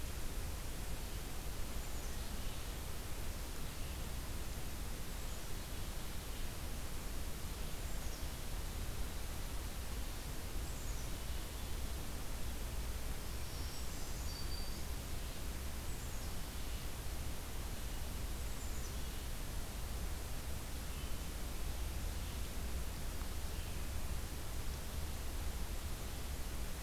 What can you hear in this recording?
Red-eyed Vireo, Black-capped Chickadee, Black-throated Green Warbler, Brown Creeper